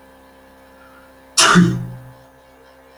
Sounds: Sneeze